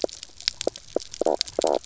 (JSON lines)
{"label": "biophony, knock croak", "recorder": "SoundTrap 300"}